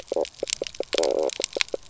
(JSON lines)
{"label": "biophony, knock croak", "recorder": "SoundTrap 300"}